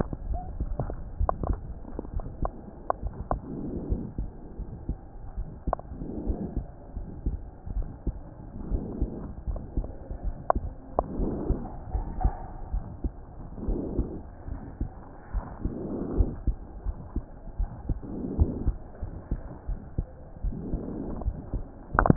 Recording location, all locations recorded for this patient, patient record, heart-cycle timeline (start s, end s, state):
pulmonary valve (PV)
aortic valve (AV)+pulmonary valve (PV)+tricuspid valve (TV)+mitral valve (MV)
#Age: Child
#Sex: Male
#Height: 130.0 cm
#Weight: 30.3 kg
#Pregnancy status: False
#Murmur: Present
#Murmur locations: aortic valve (AV)+mitral valve (MV)+pulmonary valve (PV)+tricuspid valve (TV)
#Most audible location: mitral valve (MV)
#Systolic murmur timing: Holosystolic
#Systolic murmur shape: Plateau
#Systolic murmur grading: II/VI
#Systolic murmur pitch: Low
#Systolic murmur quality: Blowing
#Diastolic murmur timing: nan
#Diastolic murmur shape: nan
#Diastolic murmur grading: nan
#Diastolic murmur pitch: nan
#Diastolic murmur quality: nan
#Outcome: Normal
#Campaign: 2015 screening campaign
0.00	1.78	unannotated
1.78	2.14	diastole
2.14	2.26	S1
2.26	2.42	systole
2.42	2.54	S2
2.54	3.04	diastole
3.04	3.14	S1
3.14	3.30	systole
3.30	3.42	S2
3.42	3.84	diastole
3.84	4.00	S1
4.00	4.16	systole
4.16	4.30	S2
4.30	4.66	diastole
4.66	4.72	S1
4.72	4.88	systole
4.88	4.98	S2
4.98	5.36	diastole
5.36	5.48	S1
5.48	5.66	systole
5.66	5.76	S2
5.76	6.22	diastole
6.22	6.38	S1
6.38	6.54	systole
6.54	6.64	S2
6.64	6.96	diastole
6.96	7.06	S1
7.06	7.22	systole
7.22	7.38	S2
7.38	7.74	diastole
7.74	7.88	S1
7.88	8.06	systole
8.06	8.16	S2
8.16	8.66	diastole
8.66	8.82	S1
8.82	9.00	systole
9.00	9.10	S2
9.10	9.48	diastole
9.48	9.62	S1
9.62	9.76	systole
9.76	9.88	S2
9.88	10.24	diastole
10.24	10.36	S1
10.36	10.53	systole
10.53	10.67	S2
10.67	11.18	diastole
11.18	11.36	S1
11.36	11.48	systole
11.48	11.62	S2
11.62	11.92	diastole
11.92	12.06	S1
12.06	12.20	systole
12.20	12.34	S2
12.34	12.70	diastole
12.70	12.84	S1
12.84	13.00	systole
13.00	13.12	S2
13.12	13.62	diastole
13.62	13.80	S1
13.80	13.96	systole
13.96	14.08	S2
14.08	14.48	diastole
14.48	14.60	S1
14.60	14.78	systole
14.78	14.92	S2
14.92	15.34	diastole
15.34	15.46	S1
15.46	15.64	systole
15.64	15.74	S2
15.74	16.10	diastole
16.10	16.28	S1
16.28	16.44	systole
16.44	16.56	S2
16.56	16.86	diastole
16.86	16.96	S1
16.96	17.14	systole
17.14	17.24	S2
17.24	17.60	diastole
17.60	17.70	S1
17.70	17.86	systole
17.86	18.00	S2
18.00	18.34	diastole
18.34	18.50	S1
18.50	18.62	systole
18.62	18.78	S2
18.78	18.99	diastole
18.99	19.14	S1
19.14	19.28	systole
19.28	19.40	S2
19.40	19.64	diastole
19.64	19.78	S1
19.78	19.94	systole
19.94	20.06	S2
20.06	20.44	diastole
20.44	22.16	unannotated